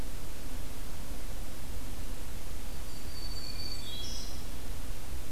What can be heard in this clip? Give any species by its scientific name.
Setophaga virens, Catharus guttatus